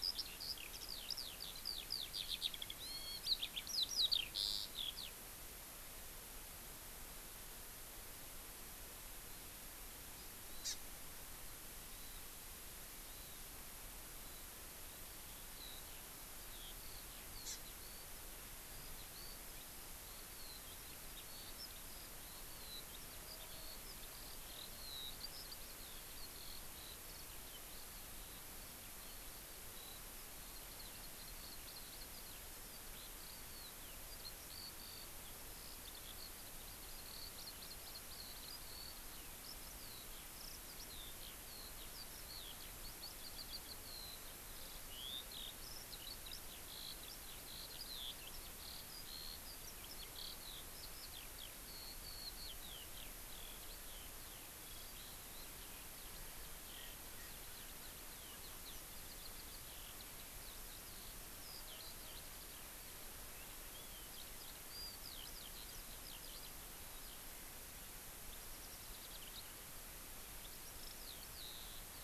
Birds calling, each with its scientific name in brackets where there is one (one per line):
Hawaii Amakihi (Chlorodrepanis virens)
Warbling White-eye (Zosterops japonicus)
Hawaiian Hawk (Buteo solitarius)
Eurasian Skylark (Alauda arvensis)